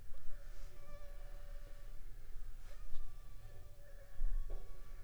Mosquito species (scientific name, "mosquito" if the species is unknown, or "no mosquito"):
Anopheles funestus s.s.